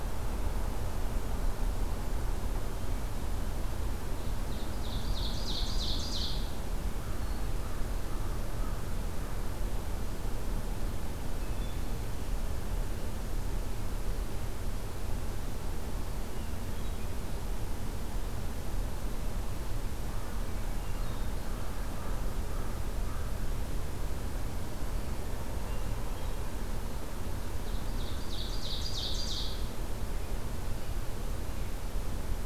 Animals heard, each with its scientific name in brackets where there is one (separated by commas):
American Crow (Corvus brachyrhynchos), Ovenbird (Seiurus aurocapilla), Hermit Thrush (Catharus guttatus)